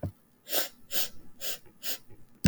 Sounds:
Sniff